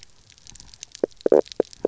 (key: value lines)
label: biophony, knock croak
recorder: SoundTrap 300